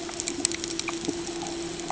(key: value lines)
label: ambient
recorder: HydroMoth